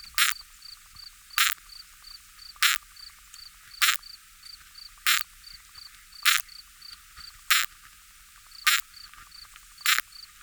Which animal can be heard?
Poecilimon thessalicus, an orthopteran